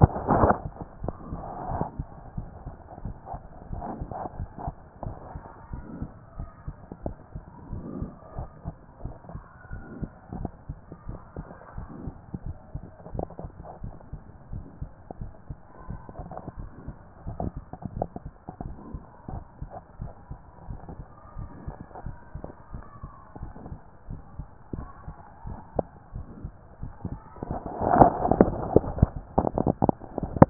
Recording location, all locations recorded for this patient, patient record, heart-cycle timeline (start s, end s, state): mitral valve (MV)
pulmonary valve (PV)+tricuspid valve (TV)+mitral valve (MV)
#Age: nan
#Sex: Female
#Height: nan
#Weight: nan
#Pregnancy status: True
#Murmur: Absent
#Murmur locations: nan
#Most audible location: nan
#Systolic murmur timing: nan
#Systolic murmur shape: nan
#Systolic murmur grading: nan
#Systolic murmur pitch: nan
#Systolic murmur quality: nan
#Diastolic murmur timing: nan
#Diastolic murmur shape: nan
#Diastolic murmur grading: nan
#Diastolic murmur pitch: nan
#Diastolic murmur quality: nan
#Outcome: Normal
#Campaign: 2014 screening campaign
0.00	13.82	unannotated
13.82	13.94	S1
13.94	14.12	systole
14.12	14.20	S2
14.20	14.52	diastole
14.52	14.64	S1
14.64	14.80	systole
14.80	14.90	S2
14.90	15.20	diastole
15.20	15.32	S1
15.32	15.48	systole
15.48	15.58	S2
15.58	15.88	diastole
15.88	16.00	S1
16.00	16.18	systole
16.18	16.28	S2
16.28	16.58	diastole
16.58	16.70	S1
16.70	16.86	systole
16.86	16.96	S2
16.96	17.28	diastole
17.28	30.50	unannotated